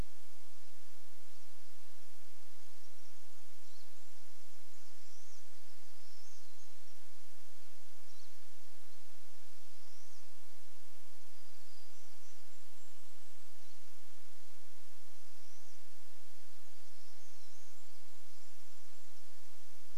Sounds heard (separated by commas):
Varied Thrush song, Golden-crowned Kinglet song, Pine Siskin song, warbler song, Pine Siskin call